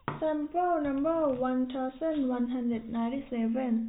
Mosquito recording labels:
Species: no mosquito; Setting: cup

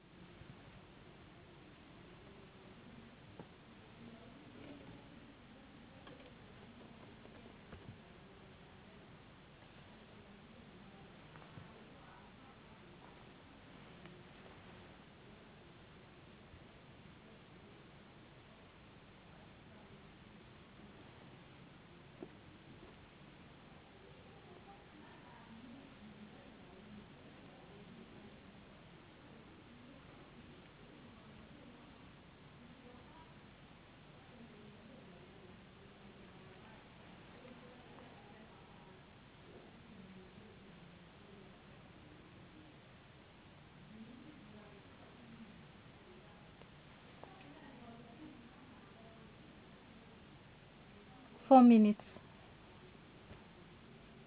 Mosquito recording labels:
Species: no mosquito; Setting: insect culture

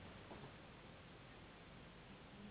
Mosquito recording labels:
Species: Anopheles gambiae s.s.; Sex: female; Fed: unfed; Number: one; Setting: insect culture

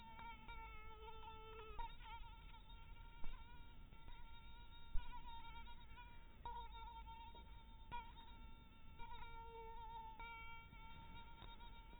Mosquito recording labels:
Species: mosquito; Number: one; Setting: cup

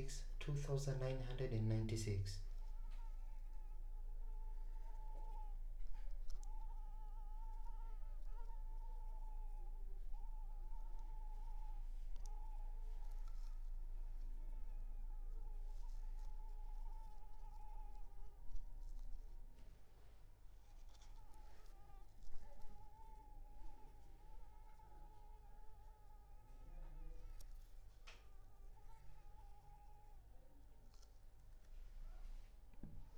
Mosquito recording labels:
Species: Anopheles arabiensis; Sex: female; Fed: unfed; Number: one; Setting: cup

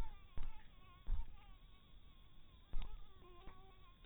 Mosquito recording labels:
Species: mosquito; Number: one; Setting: cup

